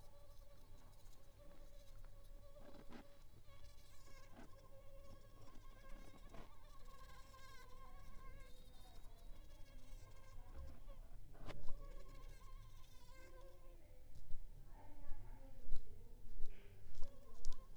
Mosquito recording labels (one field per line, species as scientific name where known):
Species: Aedes aegypti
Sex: female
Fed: unfed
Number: one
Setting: cup